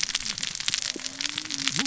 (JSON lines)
{"label": "biophony, cascading saw", "recorder": "SoundTrap 600 or HydroMoth"}